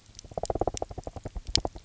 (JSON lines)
{"label": "biophony", "recorder": "SoundTrap 300"}